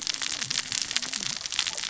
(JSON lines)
{"label": "biophony, cascading saw", "recorder": "SoundTrap 600 or HydroMoth"}